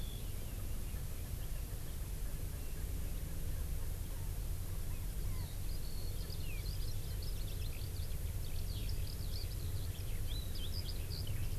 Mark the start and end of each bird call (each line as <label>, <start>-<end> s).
Eurasian Skylark (Alauda arvensis), 5.2-11.6 s